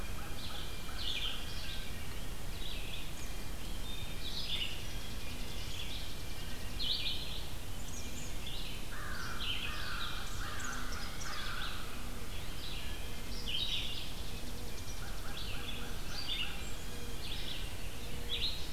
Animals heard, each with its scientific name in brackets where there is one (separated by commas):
Blue Jay (Cyanocitta cristata), Eastern Kingbird (Tyrannus tyrannus), Wood Thrush (Hylocichla mustelina), American Crow (Corvus brachyrhynchos), Red-eyed Vireo (Vireo olivaceus), Chipping Sparrow (Spizella passerina)